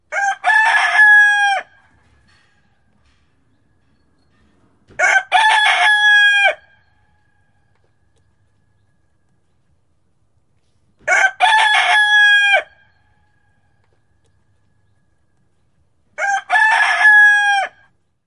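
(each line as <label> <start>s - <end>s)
A rooster crows loudly. 0.1s - 1.6s
A rooster crows softly in the distance. 1.6s - 3.8s
A rooster crows loudly. 5.0s - 6.6s
A rooster crows softly in the distance. 6.5s - 8.3s
A rooster crows loudly. 11.0s - 12.6s
A rooster crows softly in the distance. 12.6s - 14.8s
A rooster crows loudly. 16.2s - 17.7s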